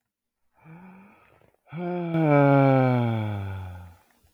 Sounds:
Sigh